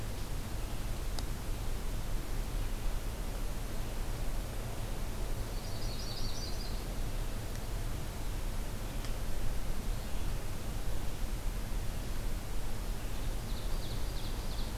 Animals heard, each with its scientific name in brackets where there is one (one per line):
Yellow-rumped Warbler (Setophaga coronata)
Ovenbird (Seiurus aurocapilla)